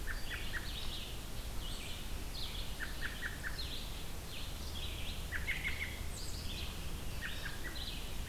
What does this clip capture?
American Robin, Red-eyed Vireo